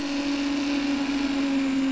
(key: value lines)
label: anthrophony, boat engine
recorder: SoundTrap 300